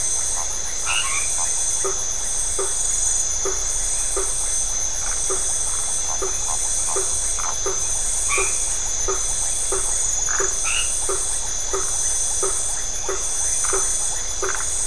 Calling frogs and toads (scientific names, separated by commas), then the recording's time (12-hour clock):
Boana faber, Boana albomarginata, Phyllomedusa distincta
9:30pm